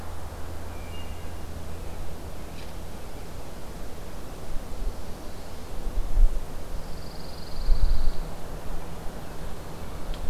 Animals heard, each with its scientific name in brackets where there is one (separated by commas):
Wood Thrush (Hylocichla mustelina), Pine Warbler (Setophaga pinus)